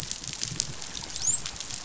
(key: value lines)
label: biophony, dolphin
recorder: SoundTrap 500